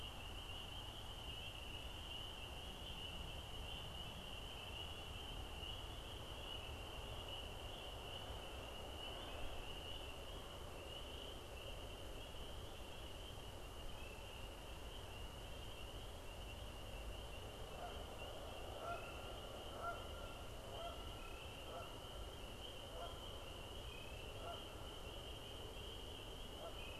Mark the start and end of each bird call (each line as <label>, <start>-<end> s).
Canada Goose (Branta canadensis), 17.5-26.9 s